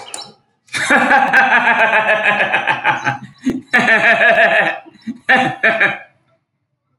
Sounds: Laughter